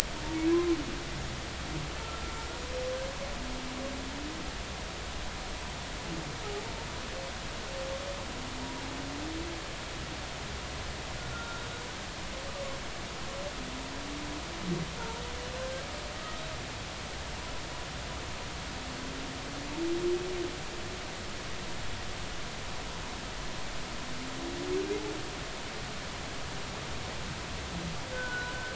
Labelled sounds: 2.0	2.3	humpback whale, 1.3 to 1.4 kHz
11.3	11.6	humpback whale, 1.3 to 1.4 kHz
28.1	28.7	humpback whale, 1.4 to 1.6 kHz

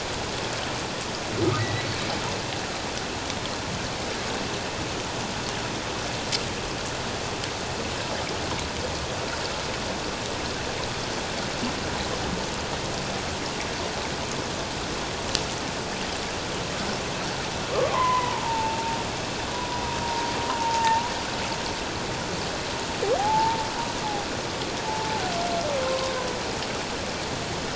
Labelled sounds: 1.6	1.9	humpback whale, 1.8 to 4.0 kHz
17.7	18.8	humpback whale, 0.78 to 2.1 kHz
19.5	19.8	humpback whale, 0.94 to 1.0 kHz
20.5	21.0	humpback whale, 0.81 to 1.1 kHz
23.2	23.7	humpback whale, 0.78 to 0.97 kHz
24.8	26.1	humpback whale, 0.78 to 1.1 kHz

